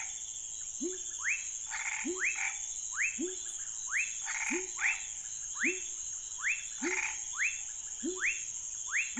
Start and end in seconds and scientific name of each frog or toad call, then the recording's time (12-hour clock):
0.0	8.4	Leptodactylus labyrinthicus
0.0	9.1	Leptodactylus fuscus
1.6	2.6	Boana raniceps
4.2	5.0	Boana raniceps
6.8	7.2	Boana raniceps
10:00pm